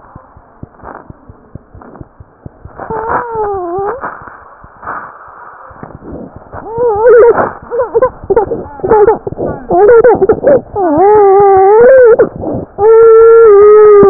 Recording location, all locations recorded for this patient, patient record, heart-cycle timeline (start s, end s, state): mitral valve (MV)
pulmonary valve (PV)+mitral valve (MV)
#Age: Infant
#Sex: Female
#Height: nan
#Weight: nan
#Pregnancy status: False
#Murmur: Unknown
#Murmur locations: nan
#Most audible location: nan
#Systolic murmur timing: nan
#Systolic murmur shape: nan
#Systolic murmur grading: nan
#Systolic murmur pitch: nan
#Systolic murmur quality: nan
#Diastolic murmur timing: nan
#Diastolic murmur shape: nan
#Diastolic murmur grading: nan
#Diastolic murmur pitch: nan
#Diastolic murmur quality: nan
#Outcome: Abnormal
#Campaign: 2015 screening campaign
0.00	0.13	unannotated
0.13	0.24	S2
0.24	0.33	diastole
0.33	0.44	S1
0.44	0.61	systole
0.61	0.70	S2
0.70	0.81	diastole
0.81	0.90	S1
0.90	1.07	systole
1.07	1.14	S2
1.14	1.24	diastole
1.24	1.34	S1
1.34	1.53	systole
1.53	1.62	S2
1.62	1.72	diastole
1.72	1.82	S1
1.82	1.98	systole
1.98	2.08	S2
2.08	2.17	diastole
2.17	2.28	S1
2.28	2.43	systole
2.43	2.52	S2
2.52	2.62	diastole
2.62	2.74	S1
2.74	14.10	unannotated